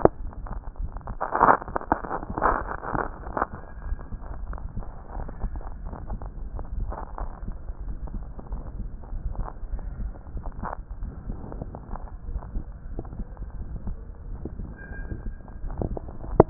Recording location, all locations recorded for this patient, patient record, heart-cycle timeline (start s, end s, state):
aortic valve (AV)
aortic valve (AV)+pulmonary valve (PV)+tricuspid valve (TV)+mitral valve (MV)
#Age: Child
#Sex: Female
#Height: 150.0 cm
#Weight: 49.7 kg
#Pregnancy status: False
#Murmur: Present
#Murmur locations: tricuspid valve (TV)
#Most audible location: tricuspid valve (TV)
#Systolic murmur timing: Holosystolic
#Systolic murmur shape: Plateau
#Systolic murmur grading: I/VI
#Systolic murmur pitch: Medium
#Systolic murmur quality: Blowing
#Diastolic murmur timing: nan
#Diastolic murmur shape: nan
#Diastolic murmur grading: nan
#Diastolic murmur pitch: nan
#Diastolic murmur quality: nan
#Outcome: Abnormal
#Campaign: 2014 screening campaign
0.00	3.70	unannotated
3.70	3.86	diastole
3.86	3.98	S1
3.98	4.12	systole
4.12	4.20	S2
4.20	4.48	diastole
4.48	4.58	S1
4.58	4.76	systole
4.76	4.84	S2
4.84	5.16	diastole
5.16	5.28	S1
5.28	5.42	systole
5.42	5.52	S2
5.52	5.84	diastole
5.84	5.96	S1
5.96	6.10	systole
6.10	6.19	S2
6.19	6.53	diastole
6.53	6.64	S1
6.64	6.78	systole
6.78	6.86	S2
6.86	7.20	diastole
7.20	7.30	S1
7.30	7.44	systole
7.44	7.54	S2
7.54	7.84	diastole
7.84	7.98	S1
7.98	8.14	systole
8.14	8.24	S2
8.24	8.52	diastole
8.52	8.62	S1
8.62	8.78	systole
8.78	8.88	S2
8.88	9.12	diastole
9.12	9.22	S1
9.22	9.38	systole
9.38	9.48	S2
9.48	9.72	diastole
9.72	16.50	unannotated